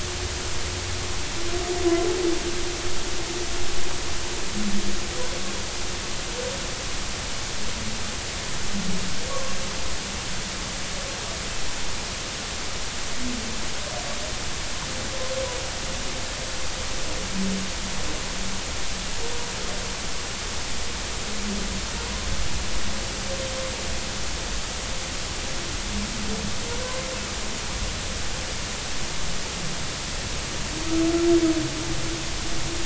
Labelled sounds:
9.3	9.5	humpback whale, 1.0 to 1.2 kHz

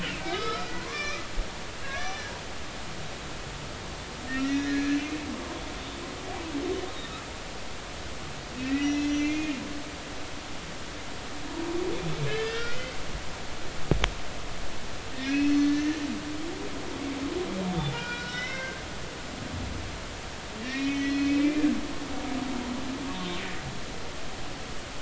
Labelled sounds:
0.3	1.2	humpback whale, 0.96 to 6.0 kHz
1.8	2.4	humpback whale, 1.0 to 2.4 kHz
4.4	5.0	humpback whale, 1.6 to 2.0 kHz
8.6	9.6	humpback whale, 1.8 to 5.9 kHz
12.3	13.0	humpback whale, 1.3 to 5.2 kHz
15.1	15.8	humpback whale, 1.8 to 4.4 kHz
16.6	18.9	humpback whale, 0.90 to 4.0 kHz
20.6	21.7	humpback whale, 1.7 to 4.3 kHz

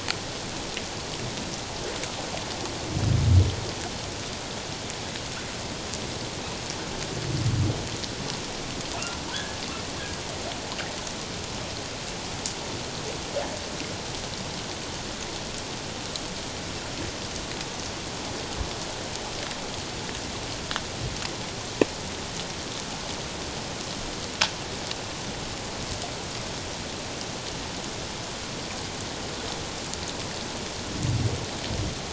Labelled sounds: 9.3	9.6	humpback whale, 1.4 to 1.8 kHz

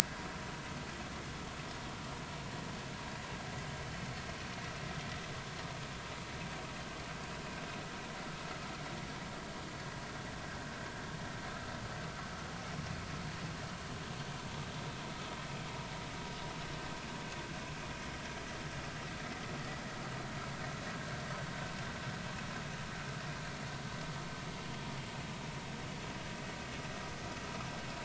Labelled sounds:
0.0	0.3	vessel noise, 0.93 to 1.1 kHz

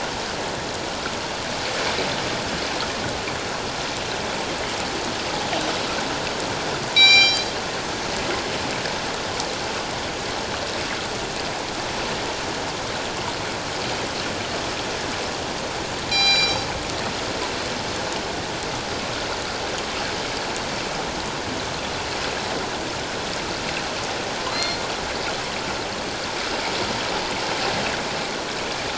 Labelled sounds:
6.9	7.5	killer whale, northern resident, G clan, 2.2 to 7.9 kHz
16.1	16.7	killer whale, northern resident, G clan, 2.3 to 8.0 kHz
24.5	24.8	killer whale, northern resident, G clan, 2.0 to 4.3 kHz

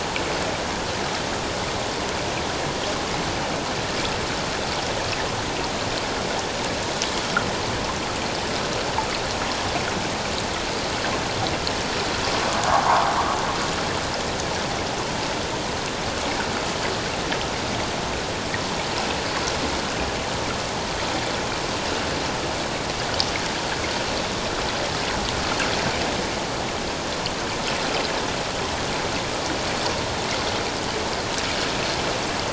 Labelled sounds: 12.7	13.1	water noise, 0.78 to 1.3 kHz

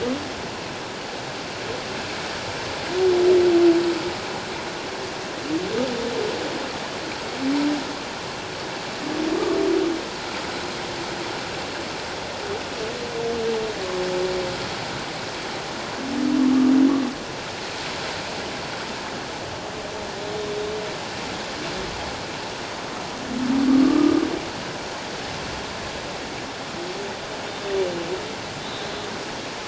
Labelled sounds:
23.8	24.1	humpback whale, 1.1 to 1.3 kHz

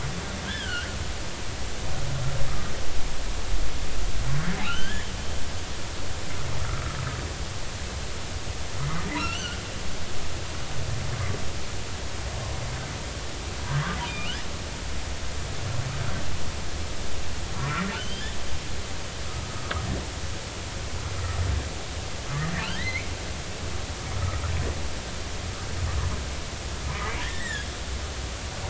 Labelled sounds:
0.4	1.0	humpback whale, 1.3 to 3.6 kHz
4.6	5.1	humpback whale, 1.2 to 3.5 kHz
9.2	9.6	humpback whale, 1.2 to 4.7 kHz
14.0	14.3	humpback whale, 2.3 to 2.6 kHz
17.9	18.3	humpback whale, 2.8 to 3.3 kHz
22.5	23.1	humpback whale, 1.3 to 4.2 kHz
27.2	27.7	humpback whale, 1.6 to 2.1 kHz

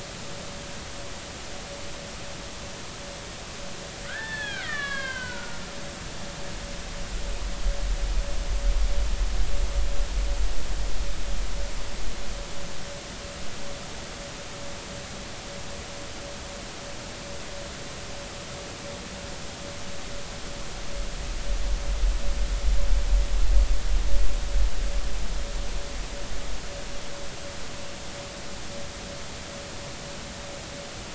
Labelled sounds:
4.1	5.6	killer whale, Bigg's (transient), 0.90 to 5.1 kHz

